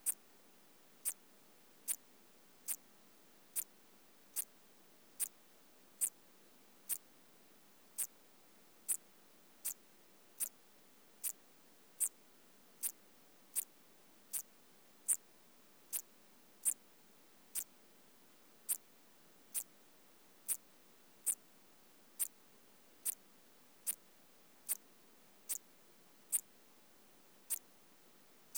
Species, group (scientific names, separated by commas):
Eupholidoptera schmidti, Orthoptera